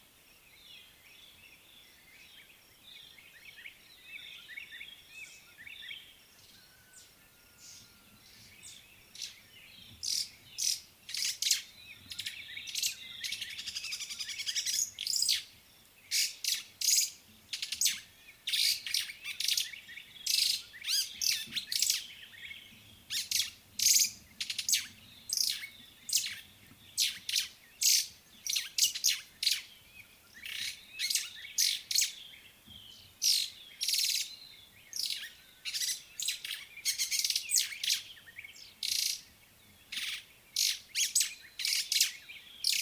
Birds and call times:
White-browed Robin-Chat (Cossypha heuglini): 4.5s
White-browed Sparrow-Weaver (Plocepasser mahali): 11.4s, 14.1s, 18.9s, 28.7s, 37.2s

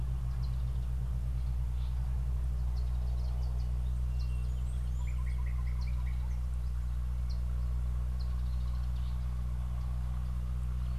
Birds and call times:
Sulphur-breasted Bushshrike (Telophorus sulfureopectus): 4.1s
Slate-colored Boubou (Laniarius funebris): 5.7s

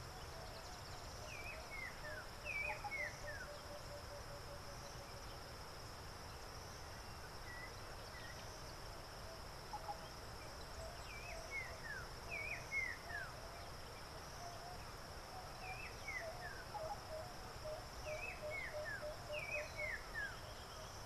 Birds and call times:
Emerald-spotted Wood-Dove (Turtur chalcospilos): 4.0s, 17.8s

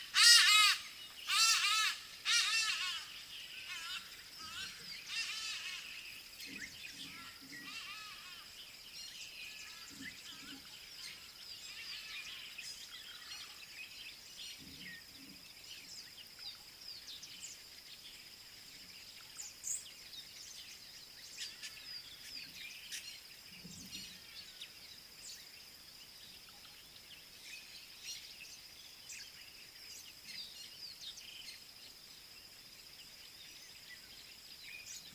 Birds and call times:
Hadada Ibis (Bostrychia hagedash): 1.6s, 5.4s

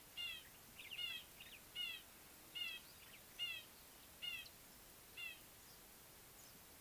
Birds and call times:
Red-fronted Barbet (Tricholaema diademata): 1.8s

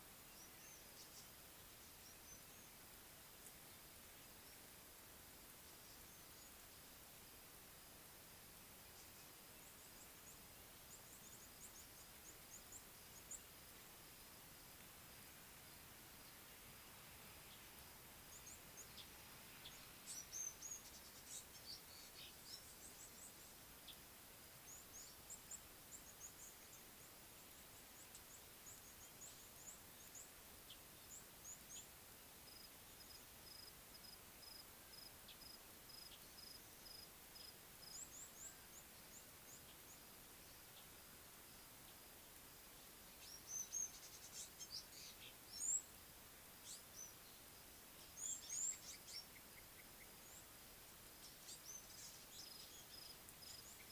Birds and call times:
Red-cheeked Cordonbleu (Uraeginthus bengalus): 11.6s, 25.6s, 38.4s, 45.7s
African Gray Flycatcher (Bradornis microrhynchus): 20.4s, 43.7s

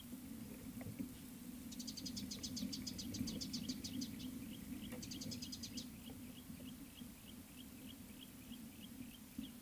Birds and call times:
Beautiful Sunbird (Cinnyris pulchellus): 3.0s
Yellow-breasted Apalis (Apalis flavida): 7.8s

